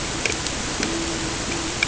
{"label": "ambient", "recorder": "HydroMoth"}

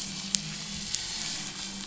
{"label": "anthrophony, boat engine", "recorder": "SoundTrap 500"}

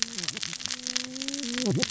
{"label": "biophony, cascading saw", "recorder": "SoundTrap 600 or HydroMoth"}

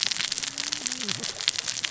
{"label": "biophony, cascading saw", "recorder": "SoundTrap 600 or HydroMoth"}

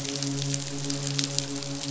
{"label": "biophony, midshipman", "recorder": "SoundTrap 500"}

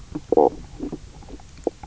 {"label": "biophony, knock croak", "recorder": "SoundTrap 300"}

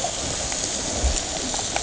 {"label": "ambient", "recorder": "HydroMoth"}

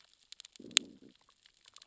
{"label": "biophony, growl", "recorder": "SoundTrap 600 or HydroMoth"}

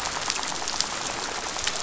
{"label": "biophony, rattle", "recorder": "SoundTrap 500"}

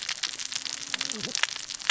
{"label": "biophony, cascading saw", "recorder": "SoundTrap 600 or HydroMoth"}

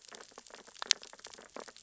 {"label": "biophony, sea urchins (Echinidae)", "recorder": "SoundTrap 600 or HydroMoth"}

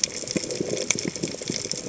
{"label": "biophony, chatter", "recorder": "HydroMoth"}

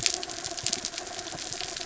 {"label": "anthrophony, mechanical", "recorder": "SoundTrap 300"}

